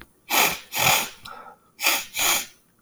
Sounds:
Sniff